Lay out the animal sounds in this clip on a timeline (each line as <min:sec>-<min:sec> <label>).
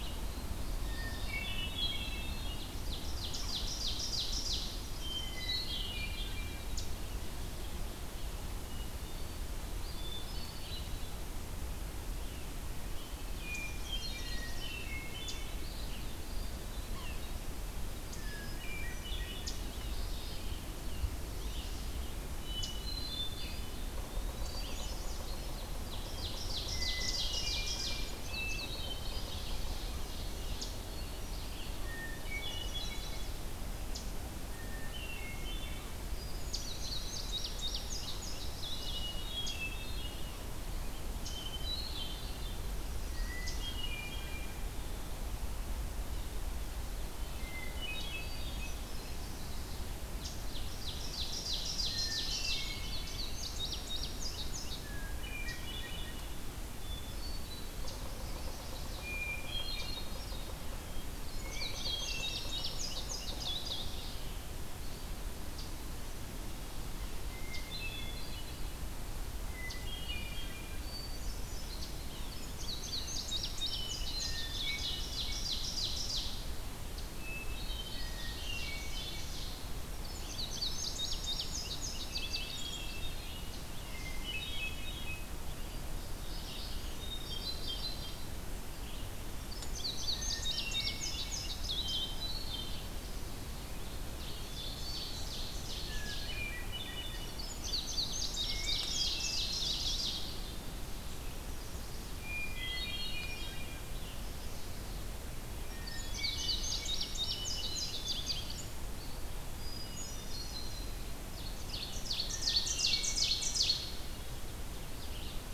0:00.0-0:06.8 Hermit Thrush (Catharus guttatus)
0:02.7-0:04.9 Ovenbird (Seiurus aurocapilla)
0:06.9-0:13.3 Red-eyed Vireo (Vireo olivaceus)
0:08.4-0:09.6 Hermit Thrush (Catharus guttatus)
0:09.8-0:11.1 Hermit Thrush (Catharus guttatus)
0:13.4-0:15.7 Hermit Thrush (Catharus guttatus)
0:13.4-0:14.9 Chestnut-sided Warbler (Setophaga pensylvanica)
0:14.1-0:25.7 Red-eyed Vireo (Vireo olivaceus)
0:15.8-0:17.1 Eastern Wood-Pewee (Contopus virens)
0:16.7-0:17.3 Yellow-bellied Sapsucker (Sphyrapicus varius)
0:18.1-0:19.5 Hermit Thrush (Catharus guttatus)
0:19.5-0:22.3 Rose-breasted Grosbeak (Pheucticus ludovicianus)
0:22.3-0:23.9 Hermit Thrush (Catharus guttatus)
0:23.6-0:24.7 Eastern Wood-Pewee (Contopus virens)
0:24.0-0:25.2 Chestnut-sided Warbler (Setophaga pensylvanica)
0:25.6-0:28.1 Ovenbird (Seiurus aurocapilla)
0:26.9-0:29.5 Hermit Thrush (Catharus guttatus)
0:28.1-0:28.8 Indigo Bunting (Passerina cyanea)
0:28.7-0:30.7 Ovenbird (Seiurus aurocapilla)
0:30.1-0:33.5 Hermit Thrush (Catharus guttatus)
0:31.9-0:33.8 Chestnut-sided Warbler (Setophaga pensylvanica)
0:34.2-0:37.3 Hermit Thrush (Catharus guttatus)
0:36.3-0:38.8 Indigo Bunting (Passerina cyanea)
0:38.7-0:40.6 Hermit Thrush (Catharus guttatus)
0:41.2-0:42.6 Hermit Thrush (Catharus guttatus)
0:43.1-0:44.8 Hermit Thrush (Catharus guttatus)
0:47.0-0:49.4 Hermit Thrush (Catharus guttatus)
0:50.2-0:52.8 Ovenbird (Seiurus aurocapilla)
0:51.7-0:53.5 Hermit Thrush (Catharus guttatus)
0:52.7-0:55.0 Indigo Bunting (Passerina cyanea)
0:54.8-0:56.5 Hermit Thrush (Catharus guttatus)
0:56.7-0:57.7 Hermit Thrush (Catharus guttatus)
0:58.9-1:00.6 Hermit Thrush (Catharus guttatus)
1:01.2-1:04.3 Indigo Bunting (Passerina cyanea)
1:01.4-1:02.9 Hermit Thrush (Catharus guttatus)
1:07.0-1:08.8 Hermit Thrush (Catharus guttatus)
1:09.4-1:12.1 Hermit Thrush (Catharus guttatus)
1:12.0-1:12.4 Yellow-bellied Sapsucker (Sphyrapicus varius)
1:12.3-1:14.7 Indigo Bunting (Passerina cyanea)
1:13.5-1:15.9 Hermit Thrush (Catharus guttatus)
1:14.4-1:16.5 Ovenbird (Seiurus aurocapilla)
1:17.1-1:19.4 Hermit Thrush (Catharus guttatus)
1:17.6-1:19.8 Ovenbird (Seiurus aurocapilla)
1:20.0-1:23.0 Indigo Bunting (Passerina cyanea)
1:22.0-1:25.4 Hermit Thrush (Catharus guttatus)
1:26.1-1:55.5 Red-eyed Vireo (Vireo olivaceus)
1:26.9-1:28.5 Hermit Thrush (Catharus guttatus)
1:29.3-1:32.3 Indigo Bunting (Passerina cyanea)
1:29.9-1:33.0 Hermit Thrush (Catharus guttatus)
1:33.9-1:36.5 Ovenbird (Seiurus aurocapilla)
1:34.2-1:35.4 Hermit Thrush (Catharus guttatus)
1:35.9-1:37.5 Hermit Thrush (Catharus guttatus)
1:37.4-1:40.8 Indigo Bunting (Passerina cyanea)
1:37.9-1:40.8 Ovenbird (Seiurus aurocapilla)
1:38.4-1:39.8 Hermit Thrush (Catharus guttatus)
1:42.2-1:43.9 Hermit Thrush (Catharus guttatus)
1:45.6-1:48.5 Hermit Thrush (Catharus guttatus)
1:45.9-1:48.9 Indigo Bunting (Passerina cyanea)
1:49.4-1:51.0 Hermit Thrush (Catharus guttatus)
1:51.6-1:54.0 Ovenbird (Seiurus aurocapilla)
1:52.2-1:53.7 Hermit Thrush (Catharus guttatus)
1:54.4-1:55.5 Ovenbird (Seiurus aurocapilla)